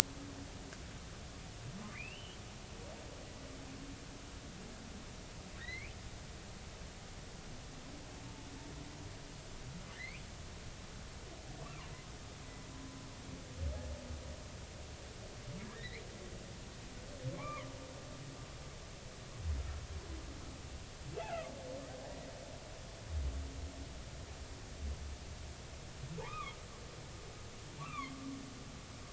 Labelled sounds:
1.9	2.4	humpback whale, 1.9 to 3.3 kHz
5.6	5.9	humpback whale, 1.6 to 4.4 kHz
9.9	10.2	humpback whale, 1.7 to 2.7 kHz
11.6	11.9	humpback whale, 0.93 to 1.4 kHz
15.6	16.0	humpback whale, 1.6 to 2.4 kHz
17.3	17.7	humpback whale, 0.80 to 2.5 kHz
21.2	21.5	humpback whale, 2.5 to 2.8 kHz
26.2	26.6	humpback whale, 0.83 to 2.6 kHz
27.8	28.1	humpback whale, 0.99 to 2.8 kHz

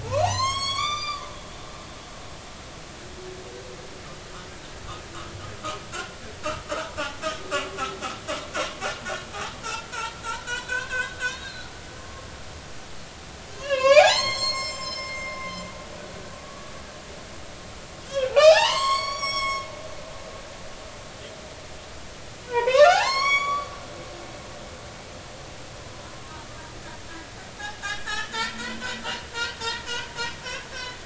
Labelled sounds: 0.0	1.2	humpback whale, 0.80 to 7.9 kHz
5.9	6.2	humpback whale, 1.3 to 1.6 kHz
6.7	7.9	humpback whale, 1.0 to 1.6 kHz
10.5	11.7	humpback whale, 0.96 to 4.4 kHz
12.0	12.3	humpback whale, 1.0 to 1.1 kHz
13.6	15.4	humpback whale, 0.80 to 7.6 kHz
16.1	16.7	humpback whale, 1.1 to 1.6 kHz
18.0	19.7	humpback whale, 0.80 to 8.0 kHz
22.5	23.7	humpback whale, 0.80 to 8.0 kHz
27.8	28.8	humpback whale, 0.83 to 5.9 kHz

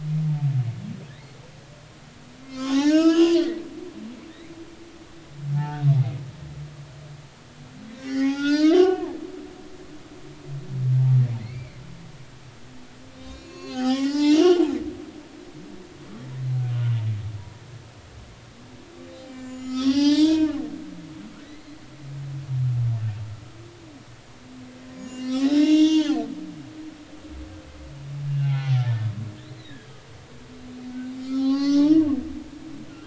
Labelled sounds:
1.1	1.4	humpback whale, 1.7 to 2.2 kHz
2.4	3.4	humpback whale, 0.80 to 6.8 kHz
5.5	6.2	humpback whale, 0.80 to 2.2 kHz
7.9	9.6	humpback whale, 0.80 to 5.5 kHz
11.4	11.8	humpback whale, 1.9 to 2.4 kHz
13.2	14.7	humpback whale, 0.80 to 6.8 kHz
15.0	15.4	humpback whale, 1.4 to 1.5 kHz
17.4	17.6	humpback whale, 0.93 to 1.0 kHz
19.3	20.6	humpback whale, 0.80 to 7.0 kHz
21.0	21.8	humpback whale, 1.8 to 5.0 kHz
24.9	26.3	humpback whale, 0.80 to 6.8 kHz
28.3	28.8	humpback whale, 0.80 to 2.8 kHz
29.4	29.9	humpback whale, 1.6 to 4.3 kHz
31.2	32.0	humpback whale, 0.80 to 6.0 kHz

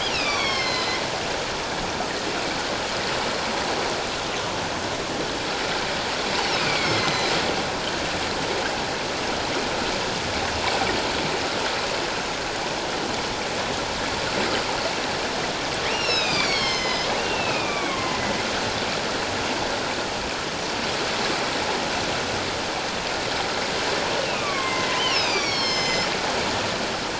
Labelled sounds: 0.1	1.0	killer whale, northern resident, A clan, AA subclan, A04 pod, call N04, 1.0 to 5.5 kHz
6.6	7.3	killer whale, northern resident, A clan, AA subclan, A04 pod, call N04, 2.0 to 6.6 kHz
15.9	18.2	killer whale, northern resident, A clan, AA subclan, A04 pod, call N04, 0.97 to 7.0 kHz
24.1	26.1	killer whale, northern resident, A clan, AA subclan, A04 pod, call N04, 1.0 to 7.5 kHz

